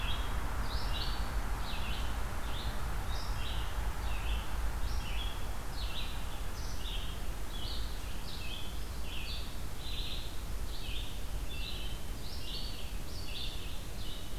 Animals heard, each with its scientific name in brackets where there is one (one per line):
Red-eyed Vireo (Vireo olivaceus)